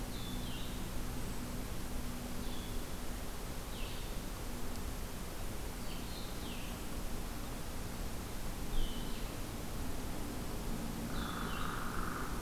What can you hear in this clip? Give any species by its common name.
Blue-headed Vireo, Hairy Woodpecker